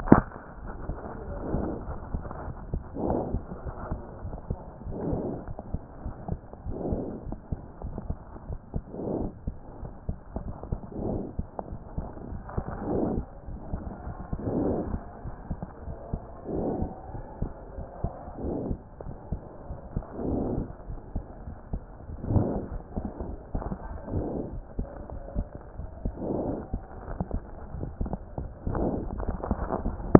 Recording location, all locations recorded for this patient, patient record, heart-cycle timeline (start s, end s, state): aortic valve (AV)
aortic valve (AV)+pulmonary valve (PV)+tricuspid valve (TV)+mitral valve (MV)
#Age: Child
#Sex: Male
#Height: 102.0 cm
#Weight: 17.5 kg
#Pregnancy status: False
#Murmur: Absent
#Murmur locations: nan
#Most audible location: nan
#Systolic murmur timing: nan
#Systolic murmur shape: nan
#Systolic murmur grading: nan
#Systolic murmur pitch: nan
#Systolic murmur quality: nan
#Diastolic murmur timing: nan
#Diastolic murmur shape: nan
#Diastolic murmur grading: nan
#Diastolic murmur pitch: nan
#Diastolic murmur quality: nan
#Outcome: Normal
#Campaign: 2014 screening campaign
0.00	7.04	unannotated
7.04	7.26	diastole
7.26	7.36	S1
7.36	7.50	systole
7.50	7.60	S2
7.60	7.82	diastole
7.82	7.94	S1
7.94	8.08	systole
8.08	8.18	S2
8.18	8.48	diastole
8.48	8.58	S1
8.58	8.74	systole
8.74	8.82	S2
8.82	9.14	diastole
9.14	9.30	S1
9.30	9.46	systole
9.46	9.56	S2
9.56	9.82	diastole
9.82	9.92	S1
9.92	10.08	systole
10.08	10.18	S2
10.18	10.36	diastole
10.36	10.52	S1
10.52	10.70	systole
10.70	10.78	S2
10.78	11.04	diastole
11.04	11.20	S1
11.20	11.36	systole
11.36	11.46	S2
11.46	11.69	diastole
11.69	11.80	S1
11.80	11.96	systole
11.96	12.08	S2
12.08	12.30	diastole
12.30	12.42	S1
12.42	12.56	systole
12.56	12.64	S2
12.64	12.88	diastole
12.88	13.04	S1
13.04	13.14	systole
13.14	13.26	S2
13.26	13.50	diastole
13.50	13.60	S1
13.60	13.72	systole
13.72	13.82	S2
13.82	14.04	diastole
14.04	14.12	S1
14.12	14.32	systole
14.32	14.38	S2
14.38	14.61	diastole
14.61	14.73	S1
14.73	14.90	systole
14.90	15.02	S2
15.02	15.24	diastole
15.24	15.34	S1
15.34	15.50	systole
15.50	15.60	S2
15.60	15.86	diastole
15.86	15.96	S1
15.96	16.12	systole
16.12	16.22	S2
16.22	16.52	diastole
16.52	16.66	S1
16.66	16.80	systole
16.80	16.90	S2
16.90	17.14	diastole
17.14	17.24	S1
17.24	17.40	systole
17.40	17.52	S2
17.52	17.78	diastole
17.78	17.86	S1
17.86	18.02	systole
18.02	18.12	S2
18.12	18.42	diastole
18.42	18.56	S1
18.56	18.68	systole
18.68	18.78	S2
18.78	19.06	diastole
19.06	19.16	S1
19.16	19.30	systole
19.30	19.40	S2
19.40	19.70	diastole
19.70	19.78	S1
19.78	19.94	systole
19.94	20.04	S2
20.04	20.24	diastole
20.24	20.42	S1
20.42	20.56	systole
20.56	20.66	S2
20.66	20.88	diastole
20.88	20.98	S1
20.98	21.14	systole
21.14	21.24	S2
21.24	21.48	diastole
21.48	21.56	S1
21.56	21.72	systole
21.72	21.82	S2
21.82	21.97	diastole
21.97	30.19	unannotated